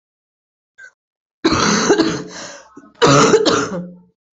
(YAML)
expert_labels:
- quality: good
  cough_type: wet
  dyspnea: false
  wheezing: false
  stridor: false
  choking: false
  congestion: false
  nothing: true
  diagnosis: lower respiratory tract infection
  severity: mild
age: 32
gender: female
respiratory_condition: true
fever_muscle_pain: false
status: COVID-19